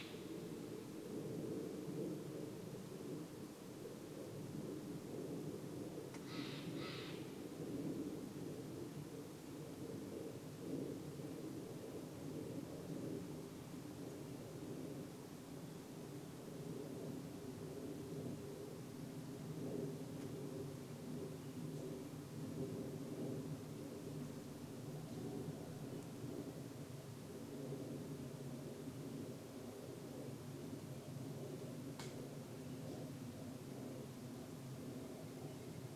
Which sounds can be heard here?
airplane, Steller's Jay call